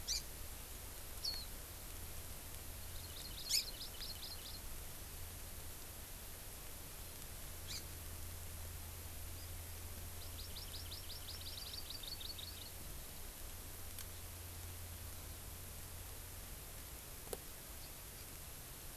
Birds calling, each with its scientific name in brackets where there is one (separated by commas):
Warbling White-eye (Zosterops japonicus), Hawaii Amakihi (Chlorodrepanis virens)